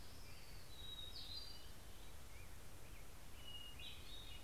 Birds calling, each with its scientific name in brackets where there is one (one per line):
Hermit Thrush (Catharus guttatus)